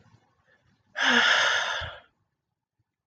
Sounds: Sigh